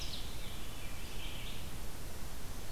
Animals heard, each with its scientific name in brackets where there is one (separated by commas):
Veery (Catharus fuscescens), Red-eyed Vireo (Vireo olivaceus)